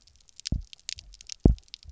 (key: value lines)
label: biophony, double pulse
recorder: SoundTrap 300